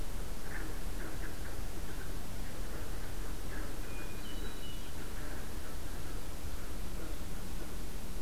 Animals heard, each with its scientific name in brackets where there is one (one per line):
Hermit Thrush (Catharus guttatus)